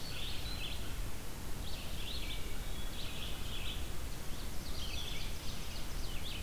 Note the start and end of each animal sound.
0.0s-6.4s: Red-eyed Vireo (Vireo olivaceus)
2.2s-3.1s: Hermit Thrush (Catharus guttatus)
4.3s-6.2s: Ovenbird (Seiurus aurocapilla)

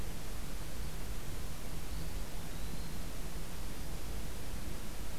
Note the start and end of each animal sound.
1.8s-3.1s: Eastern Wood-Pewee (Contopus virens)

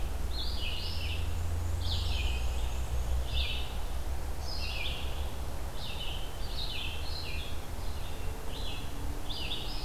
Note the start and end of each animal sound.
0.0s-9.8s: Red-eyed Vireo (Vireo olivaceus)
1.2s-3.3s: Black-and-white Warbler (Mniotilta varia)

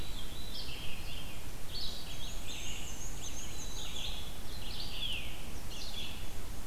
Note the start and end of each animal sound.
0.0s-1.4s: Veery (Catharus fuscescens)
0.0s-6.7s: Red-eyed Vireo (Vireo olivaceus)
1.9s-4.3s: Black-and-white Warbler (Mniotilta varia)
3.4s-4.4s: Black-capped Chickadee (Poecile atricapillus)

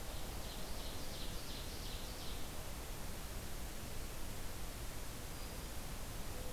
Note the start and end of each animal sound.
0.0s-2.4s: Ovenbird (Seiurus aurocapilla)
5.1s-5.8s: Black-throated Green Warbler (Setophaga virens)

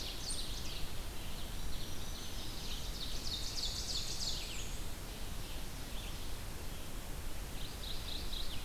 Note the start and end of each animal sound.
0.0s-4.6s: Ovenbird (Seiurus aurocapilla)
0.0s-6.4s: Red-eyed Vireo (Vireo olivaceus)
1.3s-2.5s: Black-throated Green Warbler (Setophaga virens)
3.0s-4.8s: Black-and-white Warbler (Mniotilta varia)
7.4s-8.6s: Mourning Warbler (Geothlypis philadelphia)

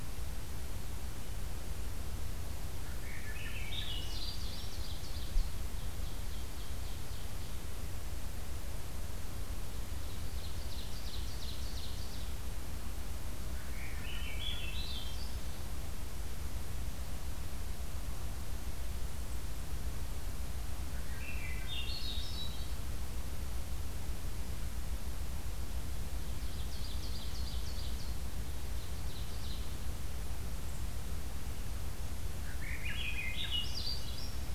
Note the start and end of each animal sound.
2.7s-4.6s: Swainson's Thrush (Catharus ustulatus)
3.9s-7.7s: Ovenbird (Seiurus aurocapilla)
9.9s-12.4s: Ovenbird (Seiurus aurocapilla)
13.5s-15.5s: Swainson's Thrush (Catharus ustulatus)
20.8s-22.7s: Swainson's Thrush (Catharus ustulatus)
26.2s-29.8s: Ovenbird (Seiurus aurocapilla)
32.4s-34.5s: Swainson's Thrush (Catharus ustulatus)

